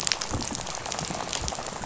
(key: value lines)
label: biophony, rattle
recorder: SoundTrap 500